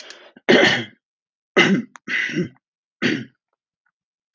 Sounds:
Throat clearing